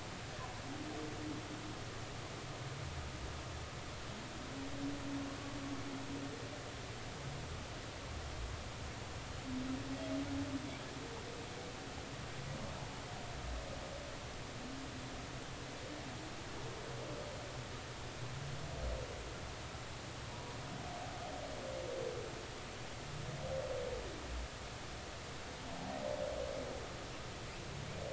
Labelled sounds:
20.3	20.6	humpback whale, 0.93 to 0.99 kHz

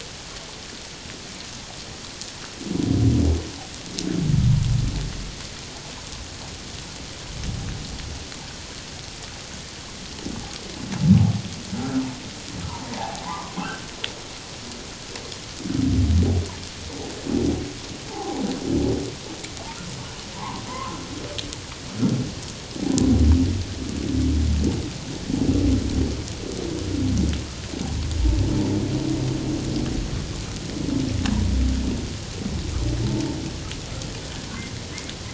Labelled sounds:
11.7	12.0	humpback whale, 1.3 to 1.5 kHz
12.7	13.9	humpback whale, 0.78 to 1.7 kHz
18.1	18.4	humpback whale, 0.78 to 1.1 kHz
20.4	21.0	humpback whale, 0.78 to 1.2 kHz

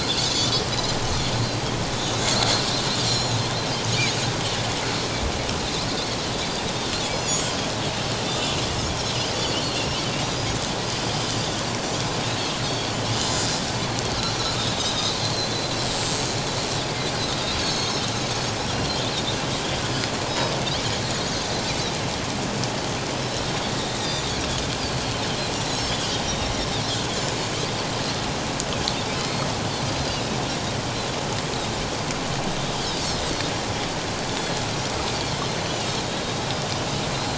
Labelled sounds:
0.2	1.3	Pacific white-sided dolphin, 3.3 to 4.5 kHz
3.0	3.4	Pacific white-sided dolphin, 3.8 to 7.1 kHz
7.0	7.5	Pacific white-sided dolphin, 4.8 to 7.0 kHz
9.7	10.0	Pacific white-sided dolphin, 5.3 to 5.6 kHz
12.6	13.0	Pacific white-sided dolphin, 4.2 to 4.6 kHz
14.7	15.5	Pacific white-sided dolphin, 3.5 to 4.5 kHz
17.6	18.0	Pacific white-sided dolphin, 4.2 to 6.7 kHz
20.3	21.3	Pacific white-sided dolphin, 3.8 to 5.2 kHz
24.0	24.2	Pacific white-sided dolphin, 3.4 to 4.0 kHz
25.8	26.2	Pacific white-sided dolphin, 2.8 to 5.5 kHz
29.2	29.5	Pacific white-sided dolphin, 2.0 to 4.4 kHz
32.7	33.2	Pacific white-sided dolphin, 3.0 to 4.9 kHz
34.3	34.5	Pacific white-sided dolphin, 3.3 to 3.6 kHz
35.6	36.4	Pacific white-sided dolphin, 2.7 to 6.2 kHz
37.1	37.3	Pacific white-sided dolphin, 4.0 to 4.2 kHz

